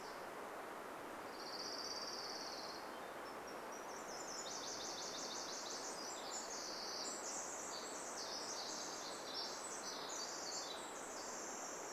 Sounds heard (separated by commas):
Golden-crowned Kinglet song, Orange-crowned Warbler song, Pacific-slope Flycatcher call, Pacific Wren song, Nashville Warbler song